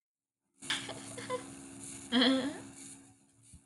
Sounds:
Laughter